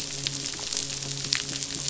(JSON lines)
{"label": "biophony, midshipman", "recorder": "SoundTrap 500"}